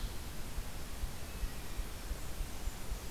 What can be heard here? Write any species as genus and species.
Setophaga fusca